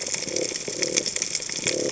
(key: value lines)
label: biophony
recorder: HydroMoth